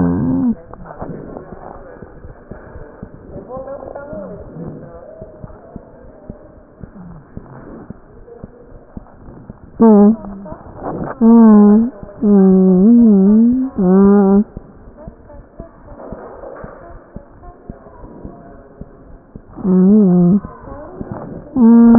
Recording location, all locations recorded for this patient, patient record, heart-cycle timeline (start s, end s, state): mitral valve (MV)
aortic valve (AV)+pulmonary valve (PV)+tricuspid valve (TV)+mitral valve (MV)
#Age: Child
#Sex: Male
#Height: 87.0 cm
#Weight: 12.5 kg
#Pregnancy status: False
#Murmur: Unknown
#Murmur locations: nan
#Most audible location: nan
#Systolic murmur timing: nan
#Systolic murmur shape: nan
#Systolic murmur grading: nan
#Systolic murmur pitch: nan
#Systolic murmur quality: nan
#Diastolic murmur timing: nan
#Diastolic murmur shape: nan
#Diastolic murmur grading: nan
#Diastolic murmur pitch: nan
#Diastolic murmur quality: nan
#Outcome: Abnormal
#Campaign: 2015 screening campaign
0.00	5.82	unannotated
5.82	6.00	diastole
6.00	6.17	S1
6.17	6.27	systole
6.27	6.37	S2
6.37	6.54	diastole
6.54	6.67	S1
6.67	6.79	systole
6.79	6.90	S2
6.90	7.10	diastole
7.10	7.24	S1
7.24	7.33	systole
7.33	7.43	S2
7.43	7.58	diastole
7.58	7.70	S1
7.70	7.86	systole
7.86	7.94	S2
7.94	8.06	diastole
8.06	8.26	S1
8.26	8.38	systole
8.38	8.50	S2
8.50	8.68	diastole
8.68	8.79	S1
8.79	8.93	systole
8.93	9.02	S2
9.02	9.19	diastole
9.19	9.35	S1
9.35	9.46	systole
9.46	9.55	S2
9.55	9.78	diastole
9.78	14.50	unannotated
14.50	14.62	S2
14.62	14.81	diastole
14.81	14.94	S1
14.94	15.04	systole
15.04	15.15	S2
15.15	15.31	diastole
15.31	15.44	S1
15.44	15.57	systole
15.57	15.68	S2
15.68	15.85	diastole
15.85	16.00	S1
16.00	16.08	systole
16.08	16.18	S2
16.18	16.35	diastole
16.35	16.48	S1
16.48	16.60	systole
16.60	16.71	S2
16.71	16.86	diastole
16.86	17.02	S1
17.02	17.13	systole
17.13	17.23	S2
17.23	17.43	diastole
17.43	17.58	S1
17.58	17.66	systole
17.66	17.76	S2
17.76	17.98	diastole
17.98	21.98	unannotated